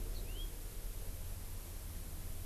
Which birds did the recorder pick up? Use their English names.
House Finch